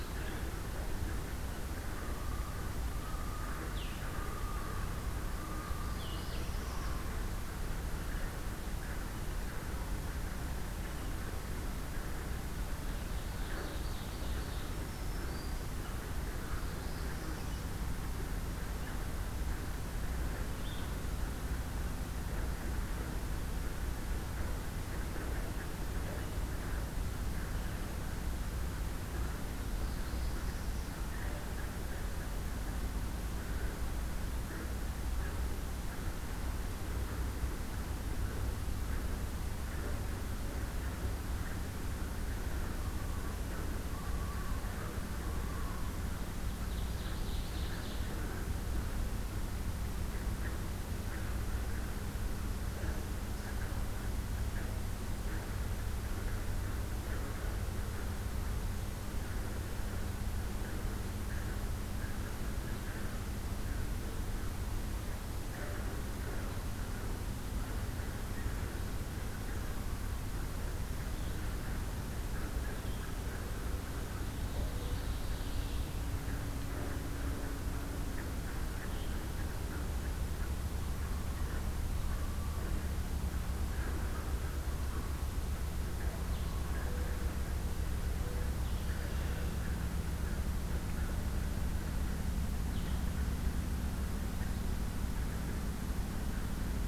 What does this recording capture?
Blue-headed Vireo, Common Loon, Northern Parula, Ovenbird, Black-throated Green Warbler, Mourning Dove